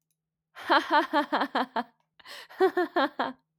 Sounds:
Laughter